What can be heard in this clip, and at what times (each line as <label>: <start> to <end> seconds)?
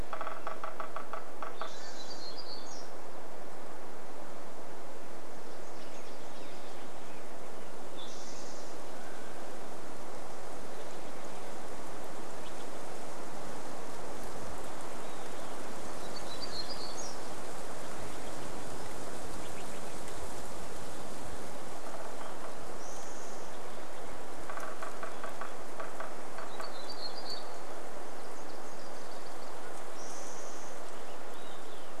Mountain Quail call: 0 to 2 seconds
woodpecker drumming: 0 to 2 seconds
Spotted Towhee song: 0 to 4 seconds
warbler song: 0 to 4 seconds
Nashville Warbler song: 4 to 8 seconds
American Robin song: 6 to 8 seconds
Mountain Quail call: 8 to 10 seconds
Spotted Towhee song: 8 to 10 seconds
Steller's Jay call: 10 to 14 seconds
Olive-sided Flycatcher song: 14 to 16 seconds
warbler song: 16 to 18 seconds
Steller's Jay call: 18 to 20 seconds
woodpecker drumming: 20 to 28 seconds
Spotted Towhee song: 22 to 24 seconds
warbler song: 26 to 28 seconds
Mountain Quail call: 28 to 30 seconds
Nashville Warbler song: 28 to 30 seconds
Olive-sided Flycatcher song: 30 to 32 seconds
Spotted Towhee song: 30 to 32 seconds